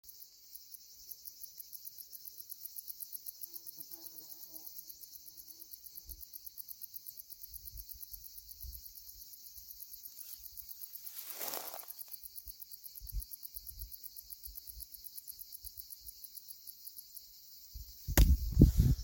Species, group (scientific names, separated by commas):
Decticus albifrons, Orthoptera